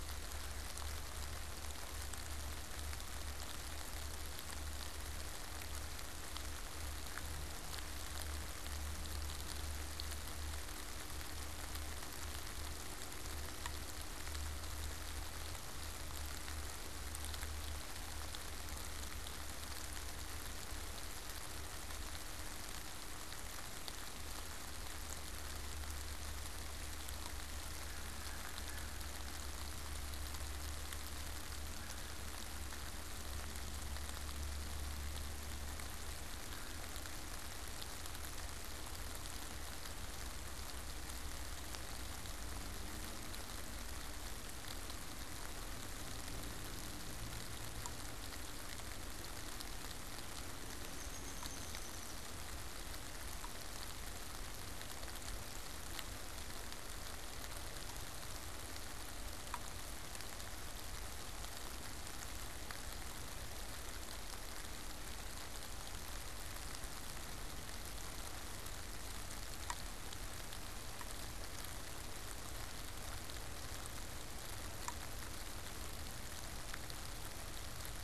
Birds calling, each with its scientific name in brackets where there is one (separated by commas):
Downy Woodpecker (Dryobates pubescens)